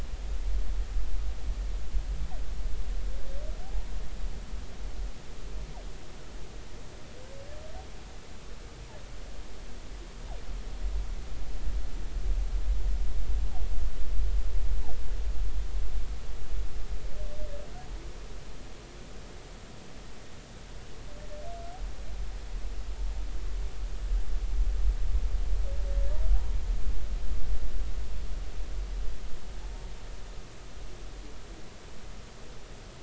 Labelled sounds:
3.6	3.9	humpback whale, 0.80 to 0.99 kHz
29.6	29.9	humpback whale, 0.80 to 0.96 kHz

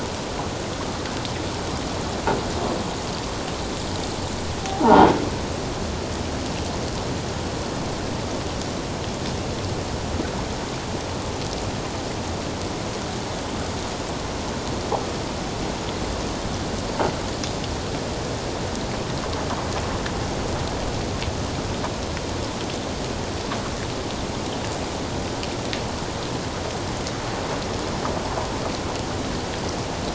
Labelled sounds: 4.8	5.1	croaking sound likely from a nearby submerged object, 0.78 to 1.0 kHz

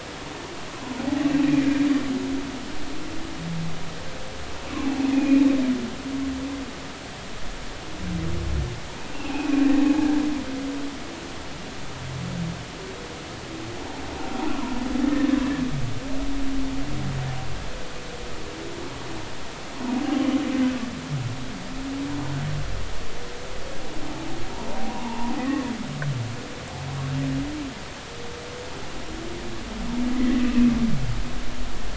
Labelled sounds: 1.4	1.7	humpback whale, 2.3 to 2.5 kHz
5.1	5.5	humpback whale, 2.4 to 2.6 kHz
9.1	9.7	humpback whale, 2.4 to 2.8 kHz
24.9	25.6	humpback whale, 0.86 to 2.0 kHz
30.2	30.8	humpback whale, 1.8 to 2.7 kHz

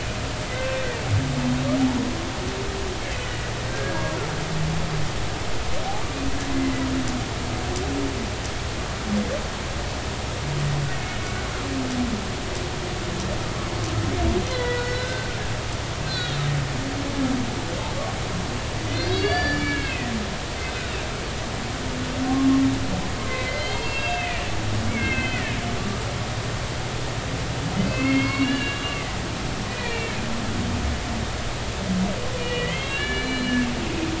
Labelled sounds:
3.2	4.2	humpback whale, 1.5 to 2.0 kHz
6.1	6.4	humpback whale, 2.3 to 2.7 kHz
11.0	11.4	humpback whale, 2.1 to 2.3 kHz
14.5	15.3	humpback whale, 0.93 to 2.1 kHz
16.0	16.4	humpback whale, 1.4 to 4.7 kHz
18.9	20.1	humpback whale, 1.5 to 5.9 kHz
20.6	20.9	humpback whale, 2.3 to 2.6 kHz
23.3	25.5	humpback whale, 1.5 to 4.9 kHz
27.8	29.0	humpback whale, 1.6 to 4.6 kHz
29.7	30.1	humpback whale, 1.8 to 2.5 kHz
32.4	33.5	humpback whale, 1.6 to 4.2 kHz

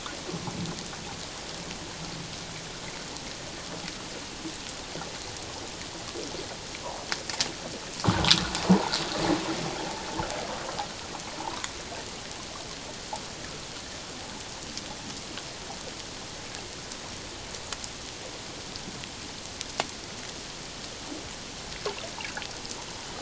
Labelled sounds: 8.0	8.3	water noise, 0.97 to 1.7 kHz

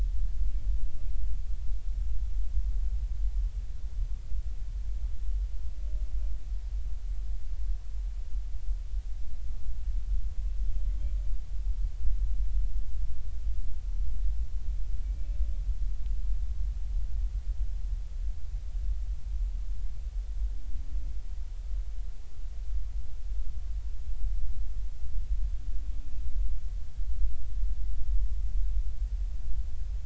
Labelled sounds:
15.0	15.3	humpback whale, 2.2 to 2.4 kHz

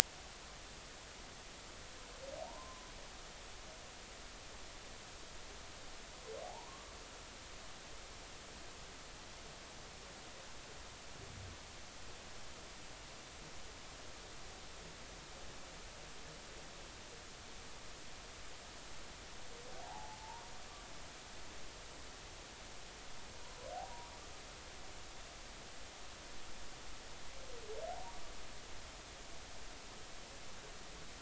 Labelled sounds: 2.4	2.9	humpback whale, 0.80 to 1.1 kHz
6.4	6.9	humpback whale, 0.80 to 1.2 kHz
19.8	20.5	humpback whale, 0.80 to 1.1 kHz
23.7	24.1	humpback whale, 0.80 to 1.0 kHz

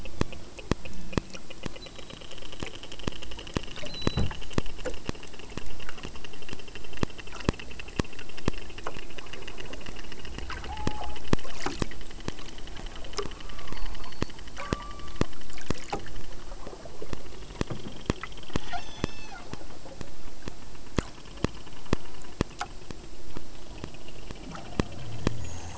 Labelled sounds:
10.5	11.3	killer whale, southern Alaska resident, 0.51 to 1.1 kHz
13.1	14.2	killer whale, southern Alaska resident, 0.49 to 1.5 kHz
14.6	15.4	killer whale, southern Alaska resident, 0.44 to 5.9 kHz
18.6	19.5	killer whale, southern Alaska resident, 0.59 to 8.0 kHz

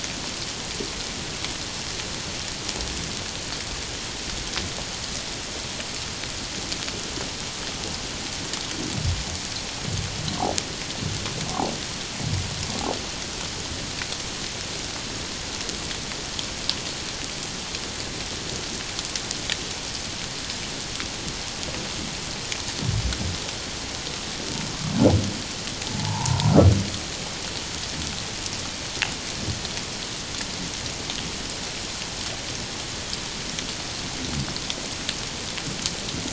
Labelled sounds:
25.8	26.5	humpback whale, 0.78 to 1.1 kHz

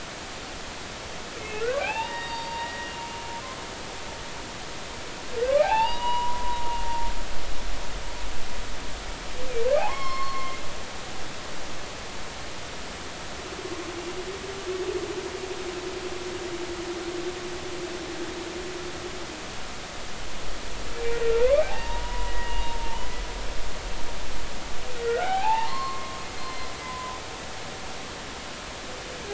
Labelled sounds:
1.4	2.9	humpback whale, 0.80 to 4.7 kHz
5.5	6.6	humpback whale, 0.80 to 3.9 kHz
9.8	10.6	humpback whale, 0.80 to 5.5 kHz
20.9	23.2	humpback whale, 0.80 to 2.9 kHz
25.0	27.2	humpback whale, 0.80 to 4.4 kHz

